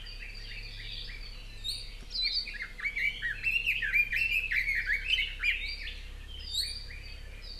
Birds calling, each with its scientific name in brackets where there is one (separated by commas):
Iiwi (Drepanis coccinea), Red-billed Leiothrix (Leiothrix lutea)